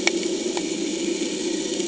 {"label": "anthrophony, boat engine", "recorder": "HydroMoth"}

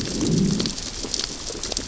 {"label": "biophony, growl", "recorder": "SoundTrap 600 or HydroMoth"}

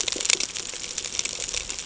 {"label": "ambient", "recorder": "HydroMoth"}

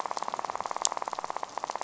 {"label": "biophony, rattle", "recorder": "SoundTrap 500"}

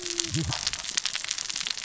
{"label": "biophony, cascading saw", "recorder": "SoundTrap 600 or HydroMoth"}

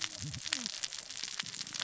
{"label": "biophony, cascading saw", "recorder": "SoundTrap 600 or HydroMoth"}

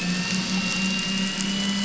{"label": "anthrophony, boat engine", "recorder": "SoundTrap 500"}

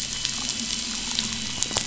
{"label": "anthrophony, boat engine", "recorder": "SoundTrap 500"}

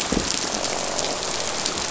{"label": "biophony, croak", "recorder": "SoundTrap 500"}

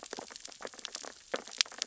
{"label": "biophony, sea urchins (Echinidae)", "recorder": "SoundTrap 600 or HydroMoth"}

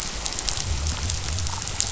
{"label": "biophony", "recorder": "SoundTrap 500"}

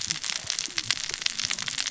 {"label": "biophony, cascading saw", "recorder": "SoundTrap 600 or HydroMoth"}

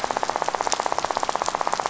{"label": "biophony, rattle", "recorder": "SoundTrap 500"}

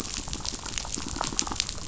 {"label": "biophony", "recorder": "SoundTrap 500"}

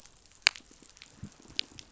{"label": "biophony, pulse", "recorder": "SoundTrap 500"}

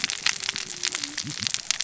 {"label": "biophony, cascading saw", "recorder": "SoundTrap 600 or HydroMoth"}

